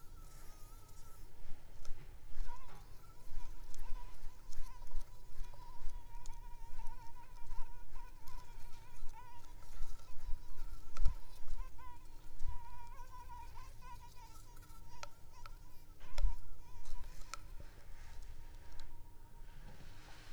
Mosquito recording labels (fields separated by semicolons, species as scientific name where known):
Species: Anopheles arabiensis; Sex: female; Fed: unfed; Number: one; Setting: cup